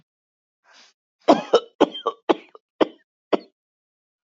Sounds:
Cough